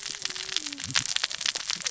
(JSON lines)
{"label": "biophony, cascading saw", "recorder": "SoundTrap 600 or HydroMoth"}